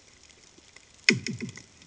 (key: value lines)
label: anthrophony, bomb
recorder: HydroMoth